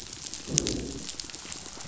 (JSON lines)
{"label": "biophony, growl", "recorder": "SoundTrap 500"}